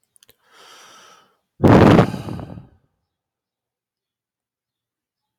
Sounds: Sigh